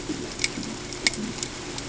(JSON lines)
{"label": "ambient", "recorder": "HydroMoth"}